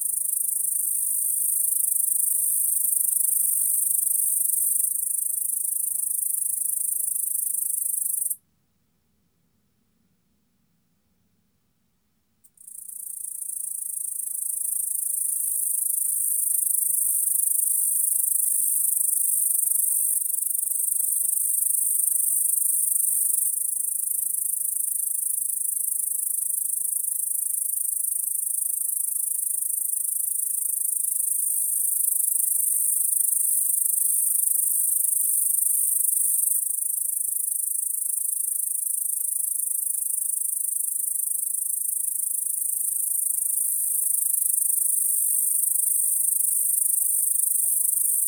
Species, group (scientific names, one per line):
Tettigonia cantans
Orthoptera